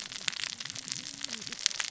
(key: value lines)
label: biophony, cascading saw
recorder: SoundTrap 600 or HydroMoth